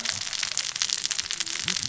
{"label": "biophony, cascading saw", "recorder": "SoundTrap 600 or HydroMoth"}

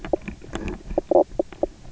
{"label": "biophony, knock croak", "recorder": "SoundTrap 300"}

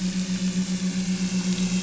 {"label": "anthrophony, boat engine", "recorder": "SoundTrap 500"}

